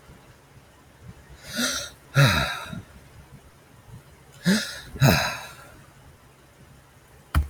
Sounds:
Sigh